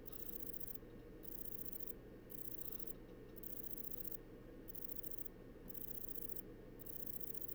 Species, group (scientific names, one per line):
Broughtonia domogledi
Orthoptera